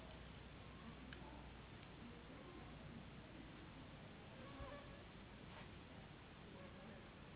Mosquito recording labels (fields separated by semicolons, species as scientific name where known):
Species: Anopheles gambiae s.s.; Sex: female; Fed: unfed; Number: one; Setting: insect culture